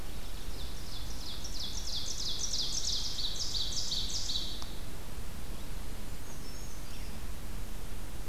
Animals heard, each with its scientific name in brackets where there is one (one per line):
Ovenbird (Seiurus aurocapilla)
Brown Creeper (Certhia americana)